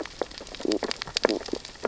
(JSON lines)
{"label": "biophony, stridulation", "recorder": "SoundTrap 600 or HydroMoth"}
{"label": "biophony, sea urchins (Echinidae)", "recorder": "SoundTrap 600 or HydroMoth"}